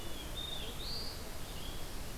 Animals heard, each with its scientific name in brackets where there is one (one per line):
Black-throated Blue Warbler (Setophaga caerulescens)
Red-eyed Vireo (Vireo olivaceus)